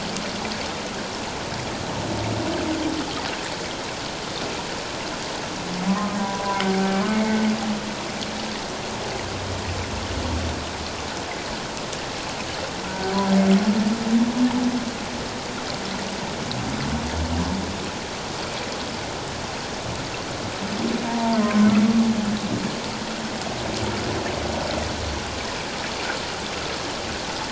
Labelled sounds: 6.2	7.4	humpback whale, 0.94 to 2.3 kHz
12.9	13.1	humpback whale, 1.4 to 1.6 kHz
21.1	21.7	humpback whale, 0.88 to 1.1 kHz

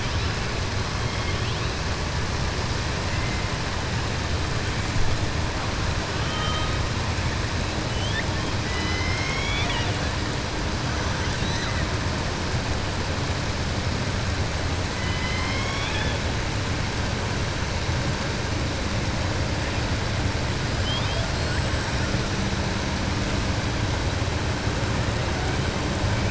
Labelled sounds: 1.0	1.7	killer whale, southern resident, 2.1 to 4.2 kHz
8.6	10.0	killer whale, southern resident, 0.95 to 6.7 kHz
14.9	16.2	killer whale, southern resident, 1.0 to 5.8 kHz

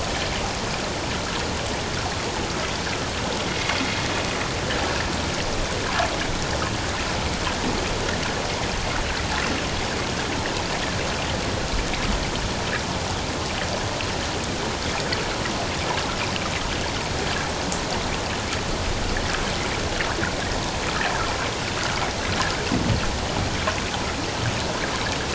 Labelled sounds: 3.5	3.8	water noise, 2.0 to 2.2 kHz

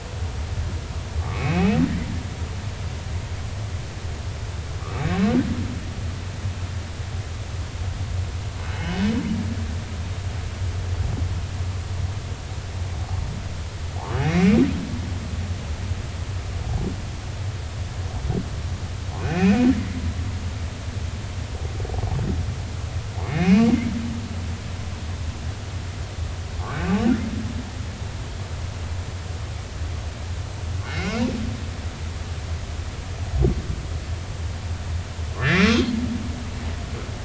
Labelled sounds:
1.2	1.8	humpback whale, 1.1 to 2.7 kHz
8.7	9.0	humpback whale, 2.8 to 5.3 kHz
14.1	14.6	humpback whale, 2.0 to 3.0 kHz
19.2	20.0	humpback whale, 1.7 to 6.0 kHz
23.2	23.9	humpback whale, 2.0 to 2.7 kHz
26.7	26.9	humpback whale, 1.4 to 1.6 kHz
30.8	31.2	humpback whale, 1.3 to 2.9 kHz
35.4	35.7	humpback whale, 1.5 to 2.5 kHz

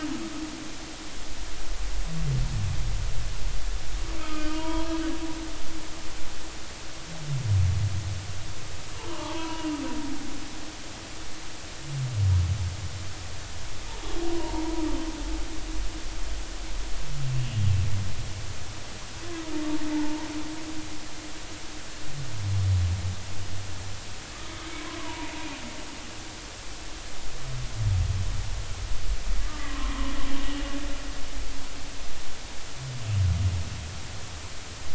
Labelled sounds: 4.2	4.9	humpback whale, 0.86 to 3.4 kHz
9.1	9.8	humpback whale, 0.83 to 2.9 kHz
14.3	14.8	humpback whale, 0.86 to 1.0 kHz
19.9	20.3	humpback whale, 0.83 to 1.0 kHz
25.0	25.3	humpback whale, 0.83 to 1.2 kHz
29.5	30.7	humpback whale, 0.93 to 3.1 kHz

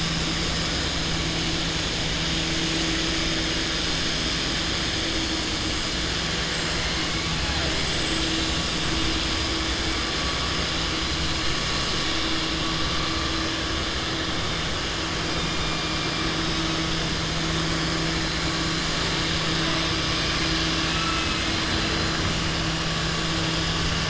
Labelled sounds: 20.8	21.6	killer whale, southern resident, 1.3 to 3.1 kHz

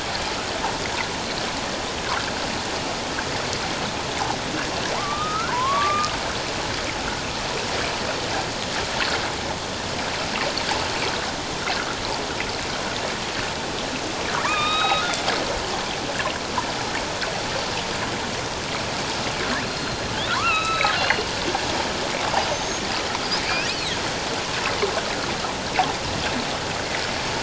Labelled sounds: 4.9	6.1	killer whale, northern resident, A clan, AB subclan, 0.88 to 1.7 kHz
14.4	15.2	killer whale, northern resident, A clan, AB subclan, 0.91 to 3.9 kHz
19.6	21.3	killer whale, northern resident, A clan, AB subclan, 0.94 to 8.0 kHz
22.5	22.8	killer whale, northern resident, A clan, AB subclan, 6.2 to 6.7 kHz

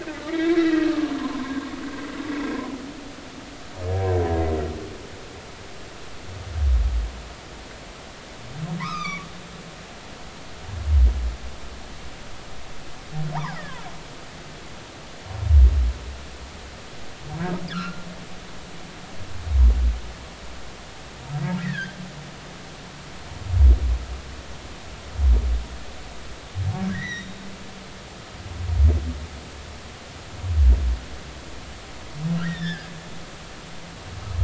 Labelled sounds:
0.0	1.6	humpback whale, 0.96 to 2.7 kHz
8.8	9.3	humpback whale, 0.90 to 6.1 kHz
13.3	13.6	humpback whale, 0.80 to 1.3 kHz
17.7	18.1	humpback whale, 1.1 to 1.9 kHz
21.6	21.9	humpback whale, 1.5 to 2.0 kHz
26.9	27.4	humpback whale, 1.8 to 6.0 kHz
32.4	32.9	humpback whale, 1.2 to 5.4 kHz

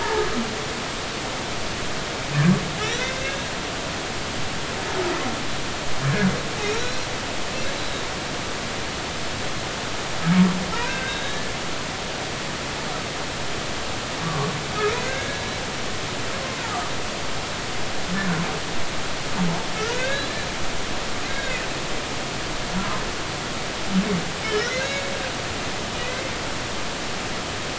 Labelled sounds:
0.0	0.4	humpback whale, 1.6 to 1.9 kHz
6.8	7.1	humpback whale, 3.8 to 4.2 kHz
7.7	8.0	humpback whale, 3.7 to 4.0 kHz
10.7	11.5	humpback whale, 0.83 to 4.0 kHz
14.2	15.4	humpback whale, 0.99 to 2.2 kHz
19.9	20.5	humpback whale, 1.5 to 4.2 kHz
21.3	21.6	humpback whale, 1.5 to 3.9 kHz
24.6	24.9	humpback whale, 1.8 to 6.4 kHz
26.0	26.3	humpback whale, 1.9 to 2.2 kHz

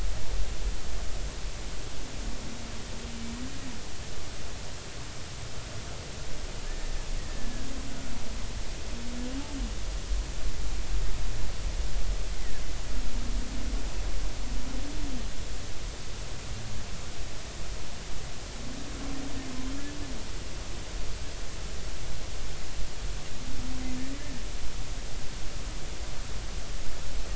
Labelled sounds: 6.6	7.7	humpback whale, 1.6 to 2.0 kHz
24.0	24.2	humpback whale, 1.8 to 2.0 kHz

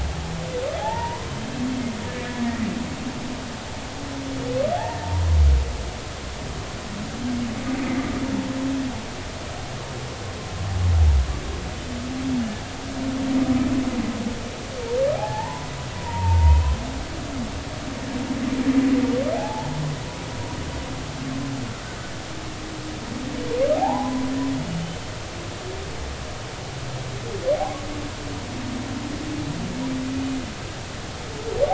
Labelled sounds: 0.8	1.6	humpback whale, 0.80 to 3.3 kHz
4.8	5.3	humpback whale, 0.86 to 1.9 kHz
15.1	16.7	humpback whale, 0.80 to 2.7 kHz
19.4	19.7	humpback whale, 0.80 to 0.99 kHz
23.7	24.3	humpback whale, 0.80 to 1.1 kHz
24.6	25.0	humpback whale, 2.9 to 3.1 kHz
27.5	27.9	humpback whale, 0.80 to 1.2 kHz

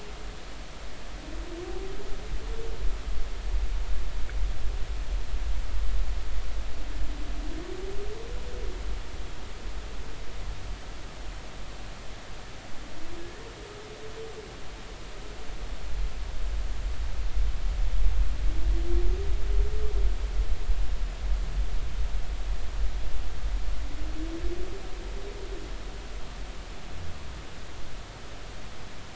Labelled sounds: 13.2	13.4	humpback whale, 1.6 to 1.9 kHz

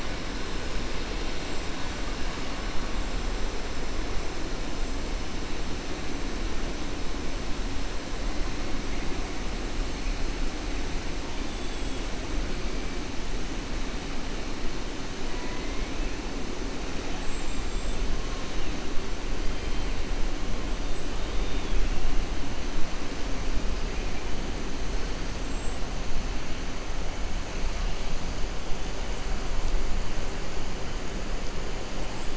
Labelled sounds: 11.4	12.0	killer whale, 2.7 to 3.6 kHz
17.1	18.0	killer whale, 7.2 to 7.8 kHz
21.2	21.8	killer whale, 2.4 to 3.8 kHz
25.4	25.8	killer whale, 7.4 to 8.0 kHz

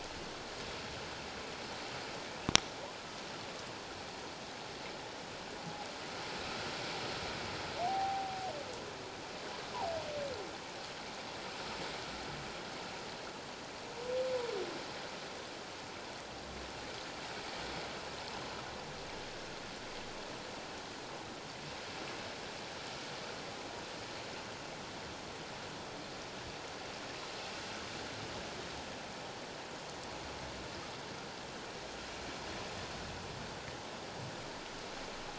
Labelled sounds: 7.8	8.4	humpback whale, 0.78 to 0.84 kHz

